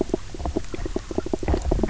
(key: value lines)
label: biophony, knock croak
recorder: SoundTrap 300